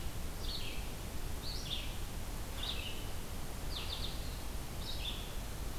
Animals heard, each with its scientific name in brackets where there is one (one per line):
Red-eyed Vireo (Vireo olivaceus)